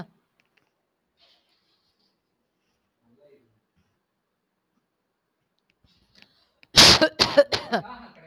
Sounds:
Cough